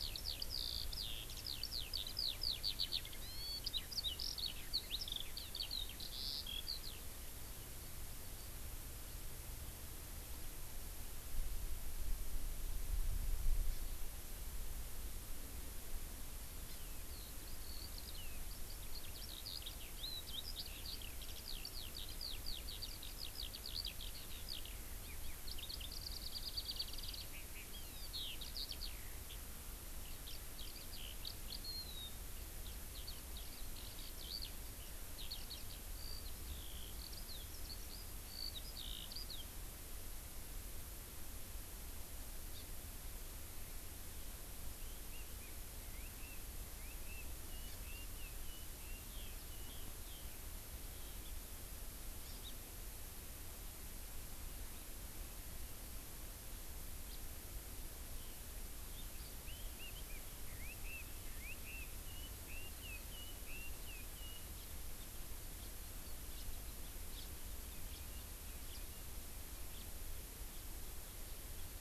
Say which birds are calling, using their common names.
Eurasian Skylark, Hawaii Amakihi, Chinese Hwamei, House Finch